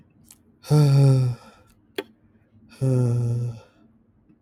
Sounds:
Sigh